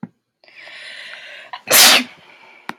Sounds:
Sneeze